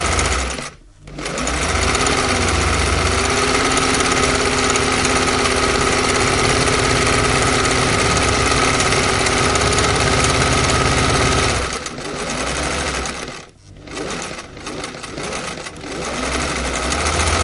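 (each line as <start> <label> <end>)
0.0 A sewing machine is running loudly. 17.4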